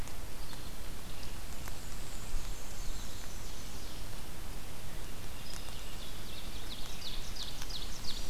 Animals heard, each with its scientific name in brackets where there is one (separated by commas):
Ovenbird (Seiurus aurocapilla), Black-and-white Warbler (Mniotilta varia)